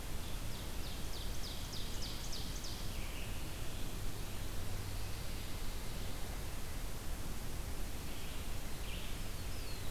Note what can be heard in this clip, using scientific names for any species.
Vireo olivaceus, Seiurus aurocapilla, Setophaga pinus, Setophaga caerulescens